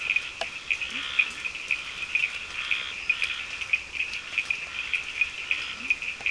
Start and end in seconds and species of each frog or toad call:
0.0	6.3	Scinax perereca
0.0	6.3	Cochran's lime tree frog
0.8	1.5	Leptodactylus latrans
5.5	6.1	Leptodactylus latrans
4:30am

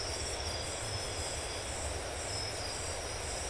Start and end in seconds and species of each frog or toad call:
none
11:30pm

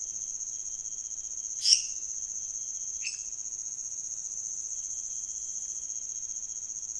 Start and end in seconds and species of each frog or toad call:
1.5	2.0	lesser tree frog
3.0	3.4	lesser tree frog
1am

